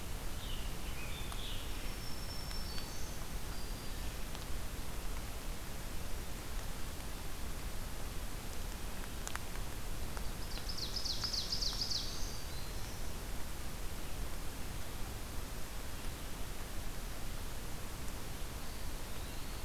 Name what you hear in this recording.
Scarlet Tanager, Black-throated Green Warbler, Ovenbird, Eastern Wood-Pewee